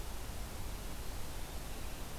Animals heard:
forest ambience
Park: Marsh-Billings-Rockefeller National Historical Park